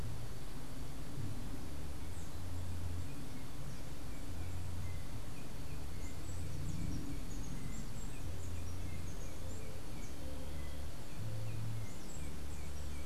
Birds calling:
Andean Emerald (Uranomitra franciae)

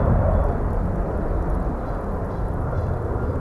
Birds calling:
Canada Goose (Branta canadensis)

